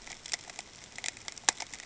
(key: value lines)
label: ambient
recorder: HydroMoth